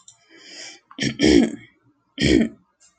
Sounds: Throat clearing